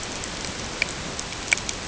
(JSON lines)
{"label": "ambient", "recorder": "HydroMoth"}